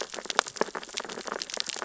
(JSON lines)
{"label": "biophony, sea urchins (Echinidae)", "recorder": "SoundTrap 600 or HydroMoth"}